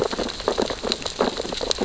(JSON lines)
{"label": "biophony, sea urchins (Echinidae)", "recorder": "SoundTrap 600 or HydroMoth"}